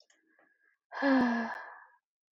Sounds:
Sigh